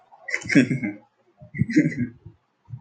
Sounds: Laughter